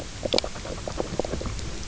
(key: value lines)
label: biophony, knock croak
recorder: SoundTrap 300